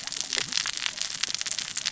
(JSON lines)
{"label": "biophony, cascading saw", "recorder": "SoundTrap 600 or HydroMoth"}